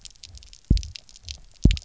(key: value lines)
label: biophony, double pulse
recorder: SoundTrap 300